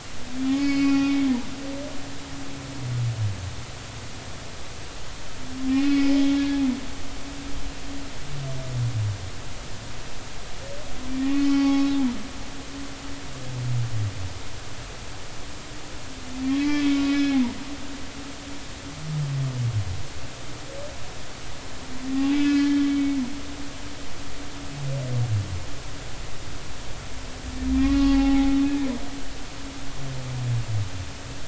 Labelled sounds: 0.3	1.2	humpback whale, 0.80 to 5.1 kHz
5.7	6.1	humpback whale, 2.1 to 2.6 kHz
11.1	12.0	humpback whale, 0.80 to 5.4 kHz
16.6	17.4	humpback whale, 1.6 to 3.4 kHz
22.1	23.2	humpback whale, 0.80 to 3.2 kHz
27.7	28.5	humpback whale, 0.80 to 4.5 kHz

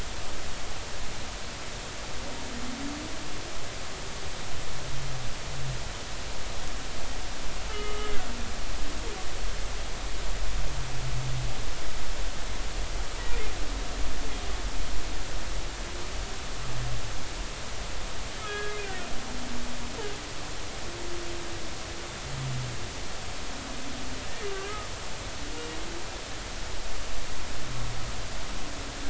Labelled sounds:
7.7	8.2	humpback whale, 1.2 to 3.0 kHz
18.4	19.1	humpback whale, 1.2 to 3.5 kHz
24.5	24.9	humpback whale, 1.1 to 1.3 kHz

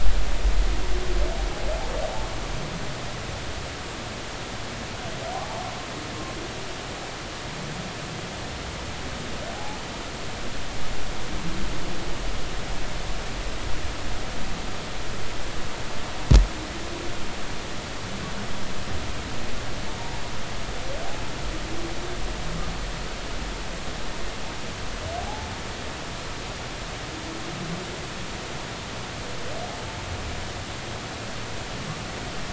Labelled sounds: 6.3	6.6	humpback whale, 0.80 to 0.96 kHz
25.2	25.5	humpback whale, 0.80 to 0.90 kHz

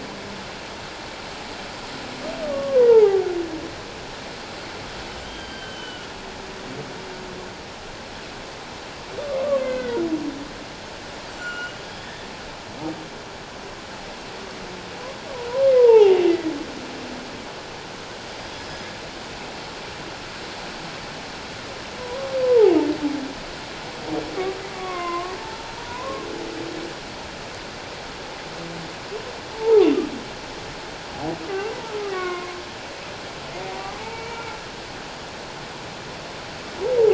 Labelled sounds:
2.4	3.2	humpback whale, 0.78 to 1.2 kHz
5.2	6.1	humpback whale, 1.4 to 3.2 kHz
9.2	10.1	humpback whale, 1.0 to 2.2 kHz
11.4	11.8	humpback whale, 1.3 to 3.0 kHz
15.8	16.5	humpback whale, 0.78 to 2.1 kHz
18.6	18.9	humpback whale, 5.0 to 5.1 kHz
22.0	22.7	humpback whale, 0.78 to 1.1 kHz
24.7	26.2	humpback whale, 0.84 to 2.2 kHz
29.5	29.9	humpback whale, 0.78 to 1.0 kHz
31.4	31.7	humpback whale, 1.1 to 1.3 kHz
32.1	32.5	humpback whale, 1.0 to 2.3 kHz
34.0	34.4	humpback whale, 2.2 to 2.4 kHz

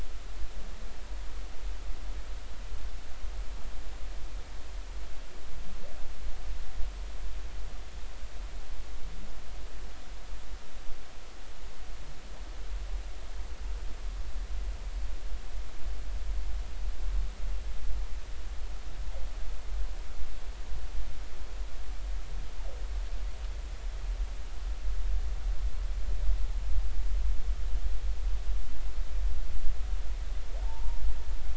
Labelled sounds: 30.6	31.0	humpback whale, 0.80 to 1.0 kHz

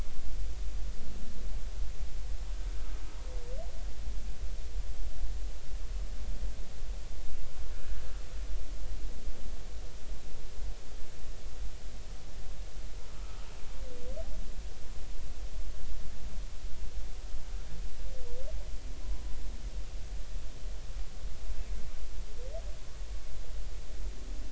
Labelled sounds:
13.2	13.4	humpback whale, 1.2 to 1.4 kHz

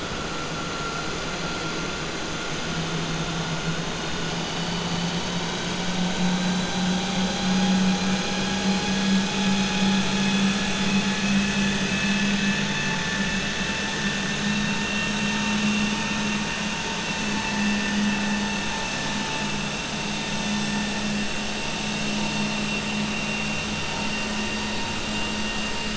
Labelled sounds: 10.6	11.8	vessel noise, 1.7 to 3.5 kHz

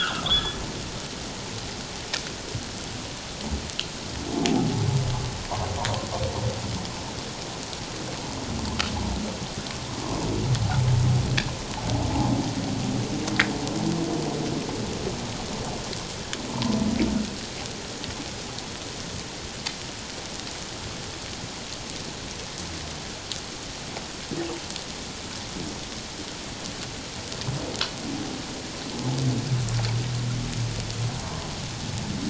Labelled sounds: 1.2	1.4	humpback whale, 1.8 to 2.0 kHz
4.5	4.8	humpback whale, 0.78 to 0.97 kHz
16.5	16.8	humpback whale, 0.84 to 1.3 kHz
28.9	29.2	humpback whale, 0.78 to 0.91 kHz

